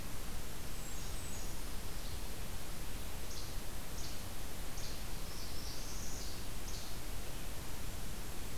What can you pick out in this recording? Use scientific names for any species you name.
Setophaga fusca, Empidonax minimus, Setophaga americana